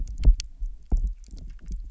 {"label": "biophony, double pulse", "recorder": "SoundTrap 300"}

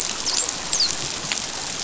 {"label": "biophony, dolphin", "recorder": "SoundTrap 500"}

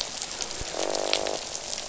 {"label": "biophony, croak", "recorder": "SoundTrap 500"}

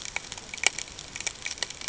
{"label": "ambient", "recorder": "HydroMoth"}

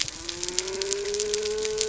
{"label": "biophony", "recorder": "SoundTrap 300"}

